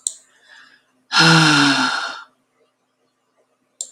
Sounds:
Sigh